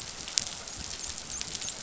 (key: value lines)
label: biophony, dolphin
recorder: SoundTrap 500